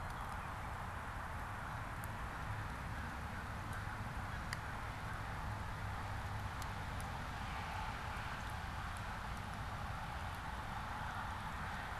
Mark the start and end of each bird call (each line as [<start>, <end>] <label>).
[2.64, 5.34] American Crow (Corvus brachyrhynchos)